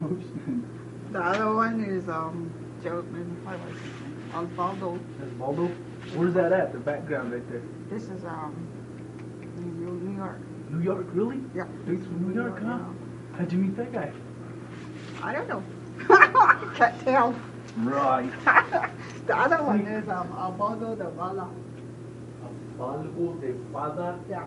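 0.0s Two people are speaking. 24.5s
16.0s A person laughing repeatedly. 17.7s
18.3s A person laughs repeatedly. 19.8s

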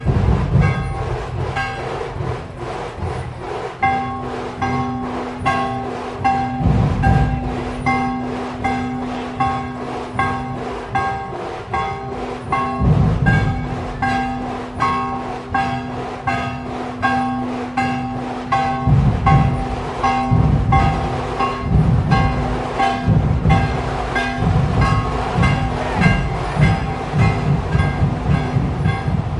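0.0s A large bell rings continuously in the train station. 29.4s

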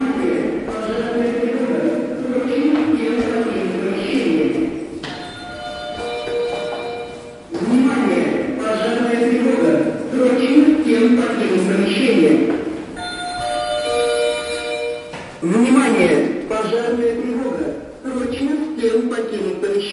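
0.0s A female voice announces an alarm. 5.1s
5.1s Fire alarm sounding like a bell. 7.6s
7.6s A female voice announces an alarm. 13.2s
13.2s A fire alarm sounds like a bell. 15.4s
15.4s A female voice announces an alarm. 19.9s

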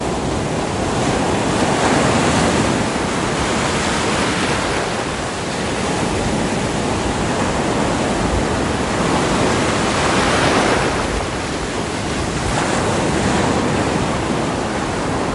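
0.0s Waves crashing loudly and repeatedly against the coast. 15.3s

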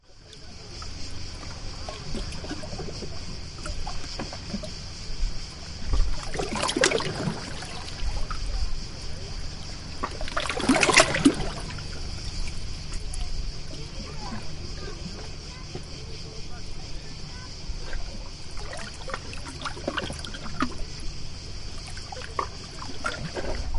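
0.1s Water flowing with splashing sounds. 23.8s

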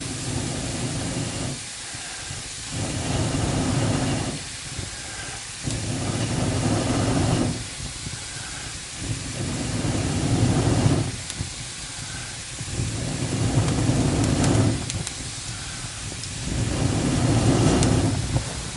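0.0s A loud shushing sound. 18.8s
0.0s A man blowing on a fire. 18.8s
13.6s Fire crackling. 15.2s
17.6s Fire crackling in the background. 17.9s

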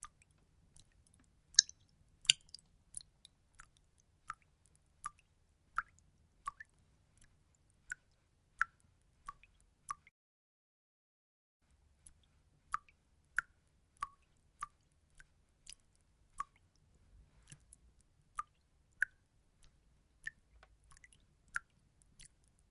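0.0s Water droplets fall into a bucket, starting with two sharp, heavy drops followed by a regular, rhythmic pattern. 10.6s
12.5s Water droplets become lighter and softer, gradually fading as the flow decreases or stops. 22.7s

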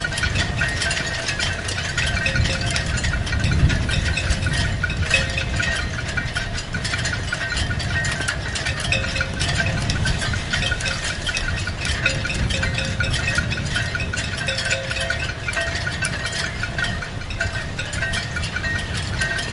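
0.0s Yacht riggings clank rhythmically as a strong wind blows. 19.5s
2.3s Yacht rigging clanks and creaks in the wind. 3.4s
4.2s Yacht rigging clanks and creaks in the wind. 6.1s
8.9s Yacht rigging clanks and creaks in the wind. 11.3s
12.0s Yacht rigging clanks and creaks in the wind. 15.5s

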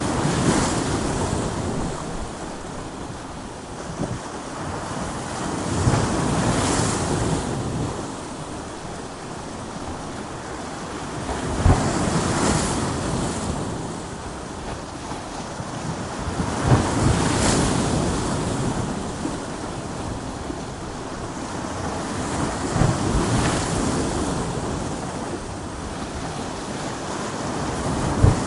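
0.0s Waves crashing on rocks in a continuous rhythm. 28.5s

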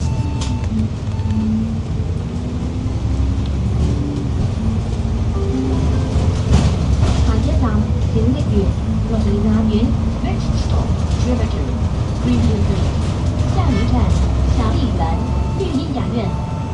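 0.0s A beep sounds with train ambient noise in the background. 1.6s
1.6s A train accelerates while the wagons rattle in the background. 5.3s
5.3s An announcement tone is playing. 6.5s
6.5s Public transport sounds are heard in the background. 7.2s
7.2s An automatic announcement is made for the next station. 16.7s
15.1s A beeping sound accompanies an announcement. 16.7s

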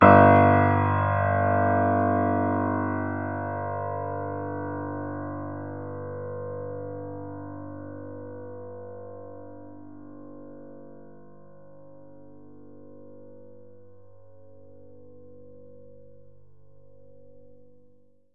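0.0s A piano note is played and fades away. 12.6s

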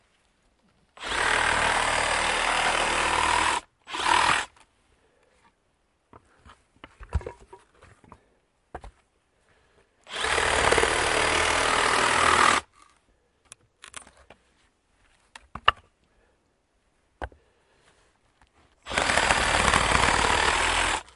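1.0s A loud mechanical whirring sound. 4.5s
7.1s A soft, dull thud from wood. 7.4s
8.7s Soft footsteps on wood. 8.9s
10.1s A loud mechanical whirring sound. 12.7s
13.8s A dry cracking sound of wood. 14.1s
13.8s Crackling sound of wood. 14.1s
15.3s A soft, dull thud from wood. 15.8s
17.2s Soft footsteps on wood. 17.3s
18.8s A loud mechanical whirring sound. 21.1s

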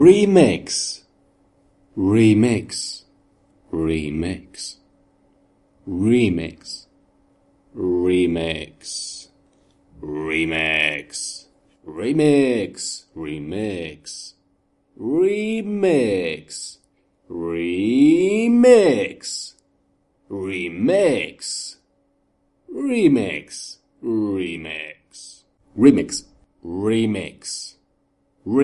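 0.0s A man speaks the word "remix." 4.8s
5.7s A man speaks the word "remix." 6.9s
7.7s A man speaks the word "remix." 9.3s
9.9s A man is speaking. 19.6s
20.2s A man speaks the word "remix." 21.9s
22.7s A man speaks the word "remix." 27.8s
28.4s A man is speaking. 28.6s

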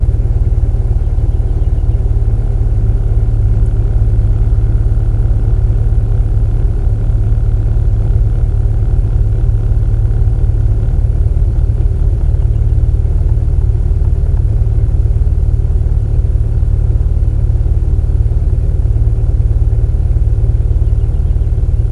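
0.0s A car engine roars continuously. 21.9s

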